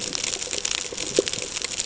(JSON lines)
{"label": "ambient", "recorder": "HydroMoth"}